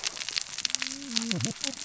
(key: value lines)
label: biophony, cascading saw
recorder: SoundTrap 600 or HydroMoth